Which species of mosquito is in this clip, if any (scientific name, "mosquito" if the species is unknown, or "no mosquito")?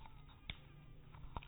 mosquito